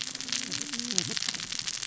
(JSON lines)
{"label": "biophony, cascading saw", "recorder": "SoundTrap 600 or HydroMoth"}